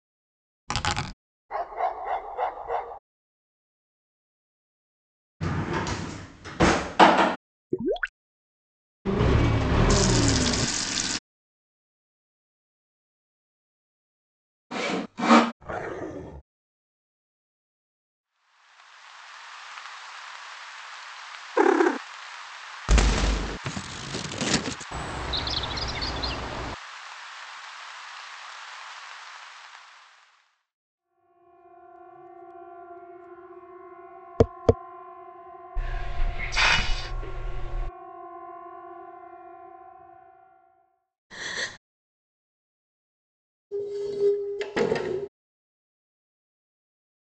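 First, a plastic object falls. Afterwards, a dog barks. Next, a drawer opens or closes. Following that, water gurgles. Later, an engine accelerates. Meanwhile, the sound of a water tap is heard. After that, there is sawing. Afterwards, you can hear growling. Later, the sound of quiet rain fades in and fades out. Over it, a cat purrs. Following that, booming is audible. After that, the sound of scissors comes through. Afterwards, there is chirping. Then you can hear a quiet siren that fades in and fades out. Over it, tapping is audible. Next, there is hissing. Later, someone gasps. After that, the sound of furniture moving can be heard.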